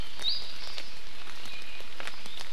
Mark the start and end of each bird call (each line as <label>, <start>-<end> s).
Iiwi (Drepanis coccinea), 0.2-0.4 s
Hawaii Amakihi (Chlorodrepanis virens), 0.6-0.9 s
Iiwi (Drepanis coccinea), 1.5-1.9 s